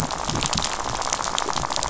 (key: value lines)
label: biophony, rattle
recorder: SoundTrap 500